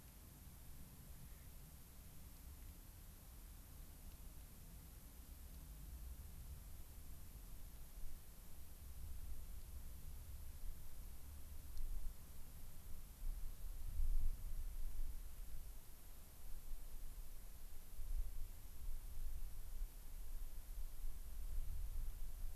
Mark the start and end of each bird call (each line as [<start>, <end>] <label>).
[1.26, 1.46] Clark's Nutcracker (Nucifraga columbiana)